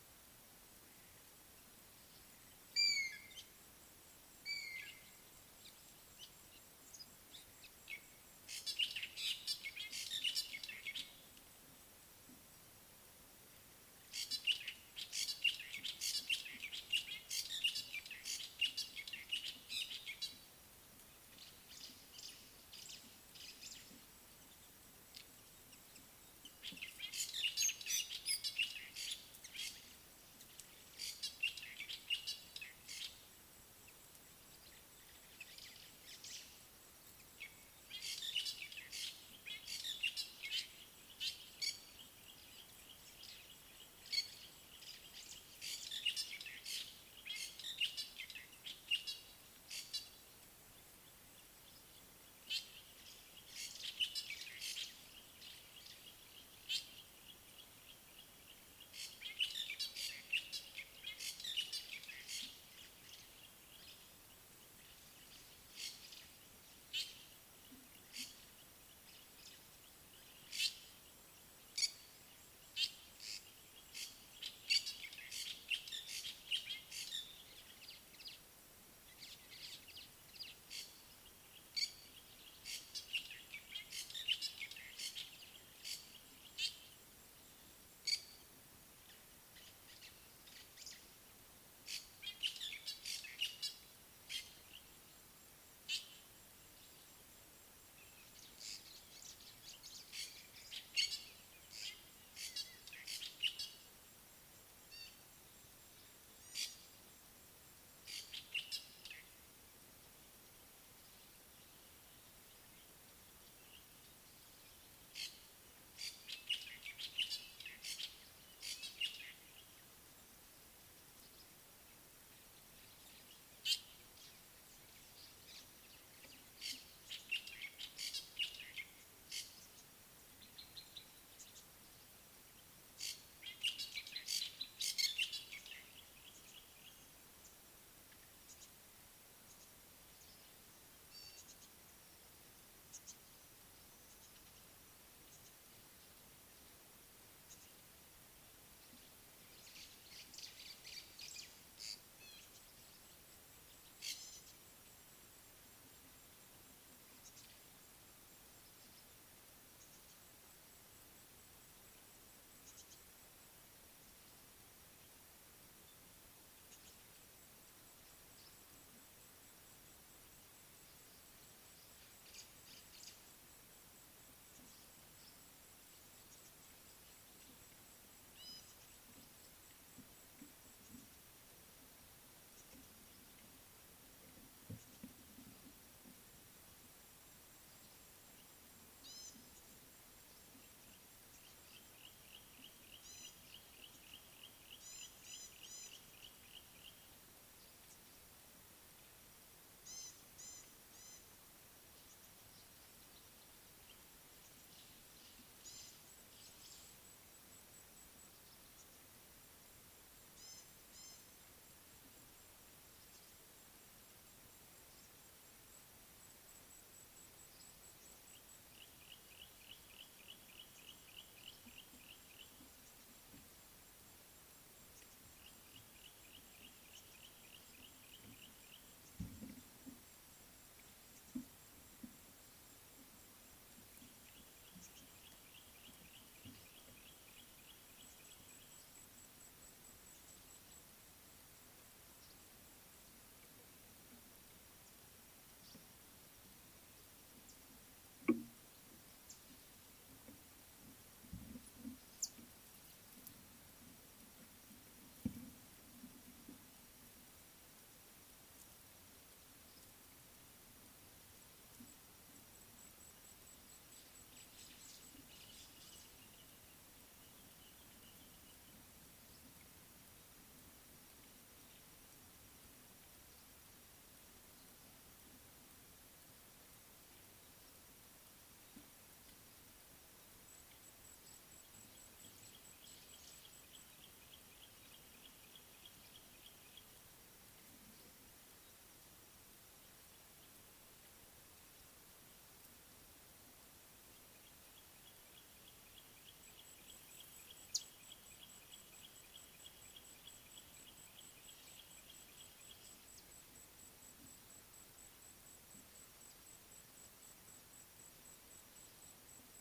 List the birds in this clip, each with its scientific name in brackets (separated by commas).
African Gray Hornbill (Lophoceros nasutus), Rufous Chatterer (Argya rubiginosa), White-browed Sparrow-Weaver (Plocepasser mahali), Rüppell's Starling (Lamprotornis purpuroptera), Yellow-breasted Apalis (Apalis flavida), Gray-backed Camaroptera (Camaroptera brevicaudata), Fork-tailed Drongo (Dicrurus adsimilis), African Gray Flycatcher (Bradornis microrhynchus), Gray Wren-Warbler (Calamonastes simplex)